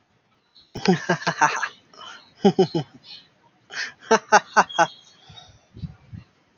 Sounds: Laughter